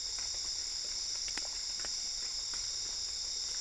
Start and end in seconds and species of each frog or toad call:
none
3:30am

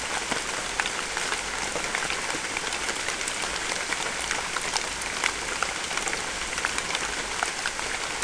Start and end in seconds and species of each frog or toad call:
none
6:30pm

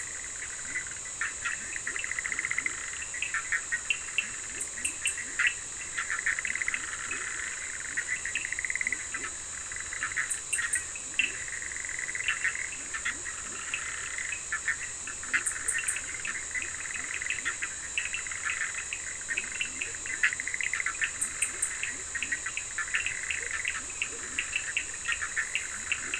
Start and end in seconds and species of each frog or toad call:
0.0	2.4	Cochran's lime tree frog
0.0	3.0	Leptodactylus latrans
0.0	26.1	Bischoff's tree frog
3.7	7.5	Cochran's lime tree frog
4.1	13.9	Leptodactylus latrans
11.1	26.1	Cochran's lime tree frog
14.9	17.8	Leptodactylus latrans
19.2	26.1	Leptodactylus latrans
11:30pm

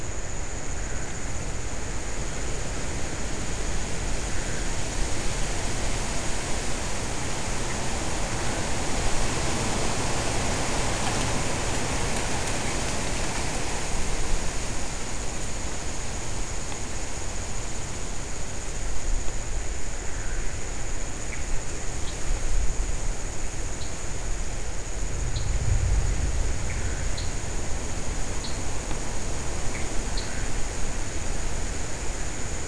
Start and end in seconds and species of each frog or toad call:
4.2	5.0	Pithecopus azureus
21.2	21.4	Pithecopus azureus
21.9	22.3	lesser tree frog
23.8	23.9	lesser tree frog
25.3	25.4	lesser tree frog
27.1	27.4	lesser tree frog
28.3	28.7	lesser tree frog
30.1	30.3	lesser tree frog
3:30am

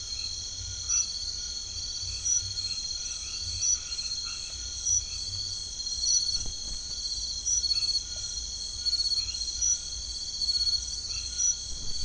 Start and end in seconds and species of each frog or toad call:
0.0	4.6	white-edged tree frog
0.0	12.0	Crubixa snouted tree frog
9.1	12.0	white-edged tree frog
9pm

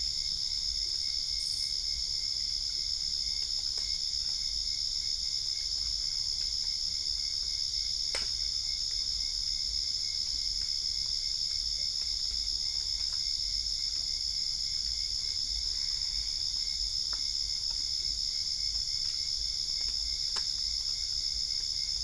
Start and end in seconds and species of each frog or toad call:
15.4	16.9	Boana albopunctata
~10pm

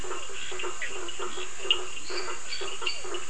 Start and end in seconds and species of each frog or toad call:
0.0	3.2	blacksmith tree frog
0.0	3.2	Physalaemus cuvieri
0.8	1.0	Bischoff's tree frog
0.8	2.1	Leptodactylus latrans
1.5	2.0	Cochran's lime tree frog
1.8	3.2	lesser tree frog
~9pm

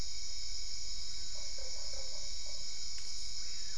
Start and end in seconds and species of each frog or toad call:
1.3	2.7	Usina tree frog
8:30pm

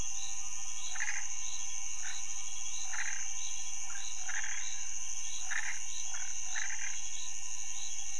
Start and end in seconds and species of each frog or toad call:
0.8	7.2	Chaco tree frog
2am

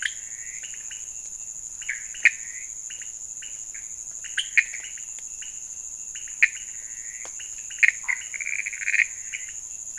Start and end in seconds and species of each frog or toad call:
0.0	9.9	pointedbelly frog
0.0	9.9	Pithecopus azureus
8.0	8.2	Scinax fuscovarius
~midnight

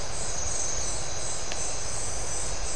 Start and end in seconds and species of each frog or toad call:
none
3am

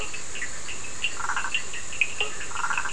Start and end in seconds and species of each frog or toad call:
0.0	0.6	Bischoff's tree frog
0.0	2.9	Burmeister's tree frog
0.0	2.9	Cochran's lime tree frog
2.0	2.6	blacksmith tree frog
11pm

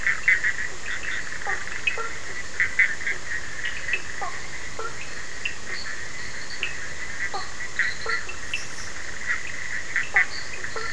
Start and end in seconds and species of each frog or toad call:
0.0	10.9	Cochran's lime tree frog
1.4	2.2	blacksmith tree frog
4.2	5.1	blacksmith tree frog
5.5	8.4	fine-lined tree frog
7.3	8.2	blacksmith tree frog
9.9	10.9	fine-lined tree frog
10.1	10.9	blacksmith tree frog
11:30pm

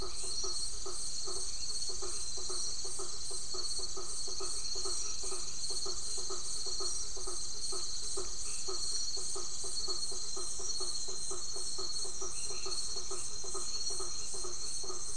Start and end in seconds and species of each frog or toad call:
0.0	15.1	blacksmith tree frog
0.0	15.1	Crubixa snouted tree frog
0.2	2.7	white-edged tree frog
4.3	5.7	white-edged tree frog
8.4	8.9	white-edged tree frog
12.0	15.1	white-edged tree frog
9:30pm

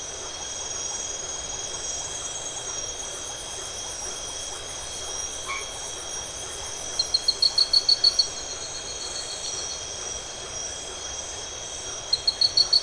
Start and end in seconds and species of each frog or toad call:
0.0	12.8	Iporanga white-lipped frog
5.5	5.9	white-edged tree frog
8:30pm

